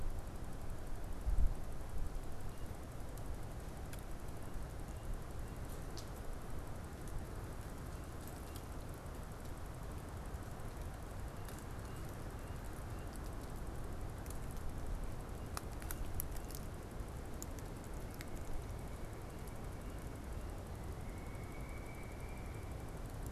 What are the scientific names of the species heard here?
Dryocopus pileatus